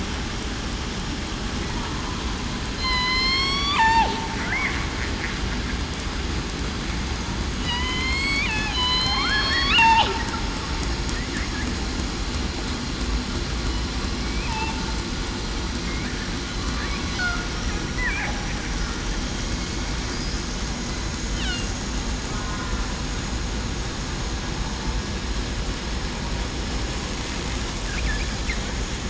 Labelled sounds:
2.8	3.8	killer whale, southern resident, 3.0 to 8.0 kHz
7.6	8.4	killer whale, southern resident, 0.94 to 3.4 kHz
8.7	9.7	killer whale, southern resident, 1.0 to 5.6 kHz
14.2	14.5	killer whale, southern resident, 2.2 to 2.6 kHz

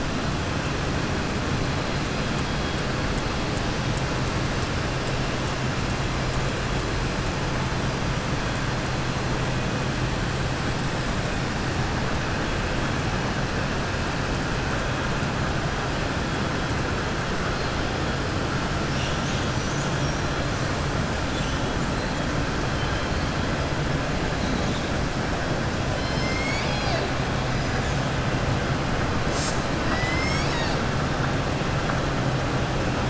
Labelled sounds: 25.9	27.1	killer whale, southern resident, 0.71 to 7.6 kHz

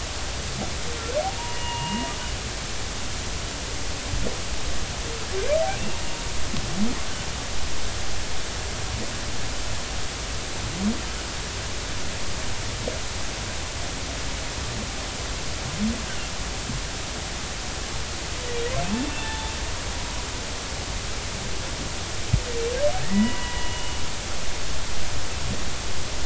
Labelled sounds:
1.2	2.1	humpback whale, 0.80 to 2.9 kHz
19.0	19.5	humpback whale, 0.83 to 3.6 kHz
23.0	23.9	humpback whale, 0.93 to 2.9 kHz

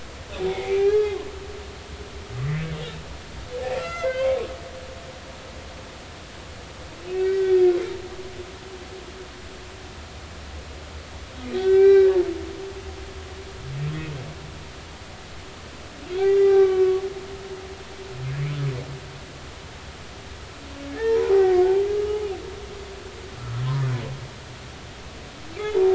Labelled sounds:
0.5	1.2	humpback whale, 0.80 to 4.7 kHz
3.8	5.1	humpback whale, 1.3 to 5.0 kHz
7.2	7.7	humpback whale, 1.4 to 4.7 kHz
11.5	12.1	humpback whale, 0.80 to 4.0 kHz
12.8	13.1	humpback whale, 1.9 to 2.0 kHz
16.2	17.0	humpback whale, 0.80 to 2.4 kHz
20.9	22.2	humpback whale, 0.80 to 2.0 kHz
23.3	23.7	humpback whale, 1.2 to 1.4 kHz

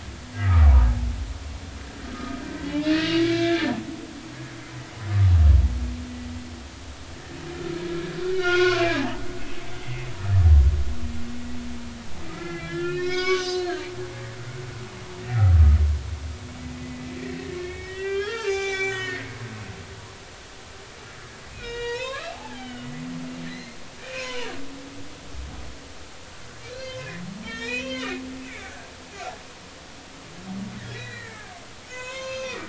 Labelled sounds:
0.4	0.7	humpback whale, 1.1 to 1.4 kHz
2.1	2.4	humpback whale, 1.2 to 1.4 kHz
3.2	3.7	humpback whale, 1.5 to 3.6 kHz
8.2	9.1	humpback whale, 0.99 to 2.7 kHz
9.7	10.1	humpback whale, 2.0 to 2.2 kHz
12.3	13.9	humpback whale, 1.0 to 6.3 kHz
15.2	15.8	humpback whale, 1.2 to 2.1 kHz
16.8	19.7	humpback whale, 0.80 to 7.5 kHz
21.5	23.0	humpback whale, 0.80 to 5.3 kHz
23.5	24.5	humpback whale, 0.86 to 4.3 kHz
26.7	28.9	humpback whale, 1.4 to 5.9 kHz
30.8	32.6	humpback whale, 0.96 to 6.7 kHz

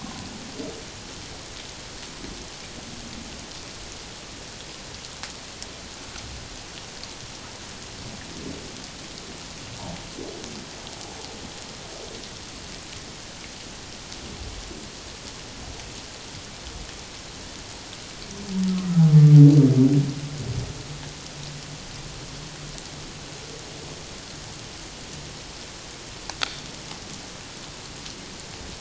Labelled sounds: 0.0	0.3	humpback whale, 0.94 to 1.1 kHz

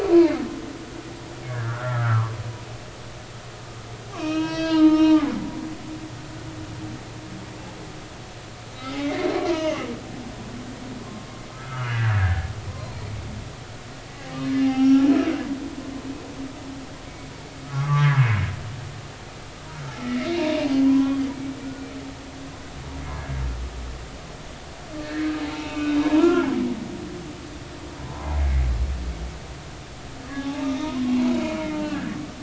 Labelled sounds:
1.5	2.3	humpback whale, 0.86 to 1.8 kHz
4.1	5.4	humpback whale, 0.90 to 5.9 kHz
8.8	9.0	humpback whale, 2.0 to 2.1 kHz
9.5	9.9	humpback whale, 0.90 to 3.2 kHz
11.5	13.0	humpback whale, 0.96 to 3.0 kHz
14.6	15.1	humpback whale, 0.80 to 5.8 kHz
17.7	18.2	humpback whale, 0.96 to 1.8 kHz
19.7	21.9	humpback whale, 0.80 to 3.3 kHz
23.0	23.4	humpback whale, 1.6 to 1.7 kHz
25.0	26.6	humpback whale, 0.80 to 2.6 kHz
28.0	28.3	humpback whale, 0.83 to 1.1 kHz
30.3	31.4	humpback whale, 0.80 to 3.7 kHz

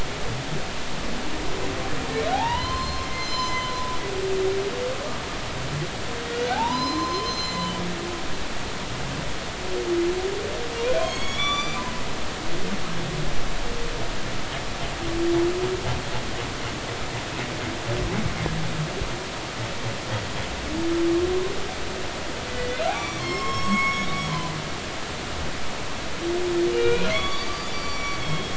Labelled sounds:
2.3	4.0	humpback whale, 0.80 to 7.3 kHz
6.2	7.7	humpback whale, 0.80 to 7.2 kHz
11.0	11.8	humpback whale, 1.1 to 7.1 kHz
22.5	25.0	humpback whale, 0.96 to 7.7 kHz
26.7	28.5	humpback whale, 1.1 to 5.8 kHz

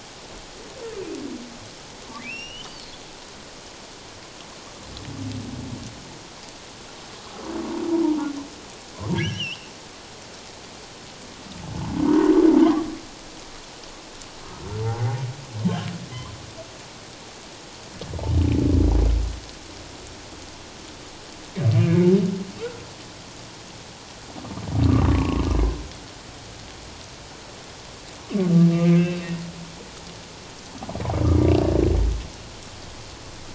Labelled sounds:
2.2	2.9	humpback whale, 2.2 to 5.8 kHz
9.1	9.7	humpback whale, 1.6 to 5.9 kHz
12.1	12.9	humpback whale, 0.84 to 1.3 kHz
14.8	15.2	humpback whale, 0.78 to 0.97 kHz
21.7	22.8	humpback whale, 1.1 to 2.3 kHz
24.9	25.4	humpback whale, 0.88 to 1.3 kHz
28.7	29.2	humpback whale, 1.2 to 2.7 kHz

